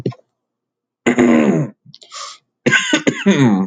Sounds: Throat clearing